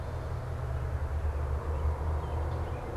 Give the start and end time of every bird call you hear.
[0.00, 2.96] American Robin (Turdus migratorius)

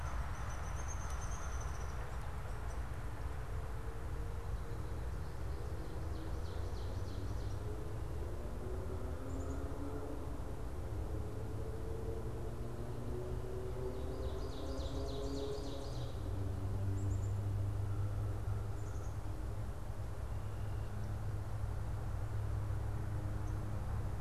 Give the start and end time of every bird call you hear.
[0.00, 2.80] Downy Woodpecker (Dryobates pubescens)
[5.50, 7.40] Ovenbird (Seiurus aurocapilla)
[8.80, 9.80] Black-capped Chickadee (Poecile atricapillus)
[13.80, 16.30] Ovenbird (Seiurus aurocapilla)
[17.00, 17.30] Black-capped Chickadee (Poecile atricapillus)
[17.70, 19.20] American Crow (Corvus brachyrhynchos)
[18.60, 19.30] Black-capped Chickadee (Poecile atricapillus)

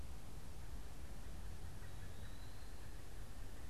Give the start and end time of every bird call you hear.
[1.42, 2.82] Eastern Wood-Pewee (Contopus virens)
[1.52, 3.70] Pileated Woodpecker (Dryocopus pileatus)

